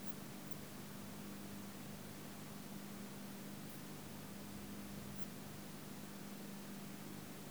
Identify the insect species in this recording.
Tessellana orina